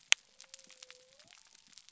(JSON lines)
{"label": "biophony", "recorder": "SoundTrap 300"}